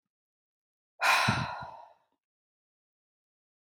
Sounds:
Sigh